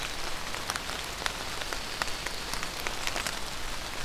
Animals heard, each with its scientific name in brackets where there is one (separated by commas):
Pine Warbler (Setophaga pinus)